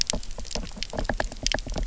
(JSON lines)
{"label": "biophony, knock", "recorder": "SoundTrap 300"}